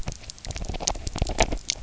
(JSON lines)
{"label": "biophony", "recorder": "SoundTrap 300"}